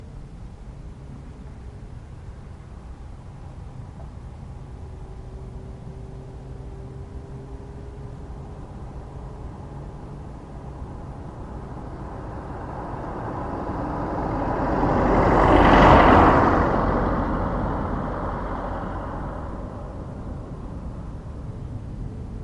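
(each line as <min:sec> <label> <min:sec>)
0:01.6 A car passes by on the street, starting quietly, growing loud as it passes, then fading into the distance. 0:22.4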